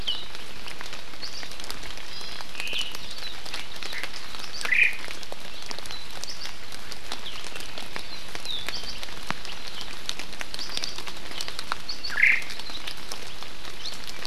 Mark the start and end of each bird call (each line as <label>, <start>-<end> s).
Warbling White-eye (Zosterops japonicus), 1.2-1.4 s
Iiwi (Drepanis coccinea), 2.1-2.5 s
Omao (Myadestes obscurus), 2.5-3.0 s
Omao (Myadestes obscurus), 4.6-5.0 s
Warbling White-eye (Zosterops japonicus), 6.3-6.5 s
Warbling White-eye (Zosterops japonicus), 8.7-9.0 s
Warbling White-eye (Zosterops japonicus), 10.6-10.9 s
Warbling White-eye (Zosterops japonicus), 11.9-12.1 s
Omao (Myadestes obscurus), 12.1-12.4 s